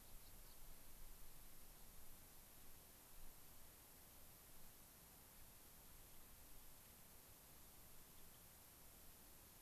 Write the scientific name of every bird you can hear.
Leucosticte tephrocotis